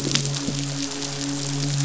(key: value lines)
label: biophony, midshipman
recorder: SoundTrap 500

label: biophony
recorder: SoundTrap 500